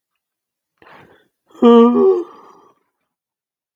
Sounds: Sigh